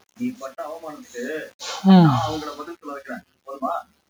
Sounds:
Sigh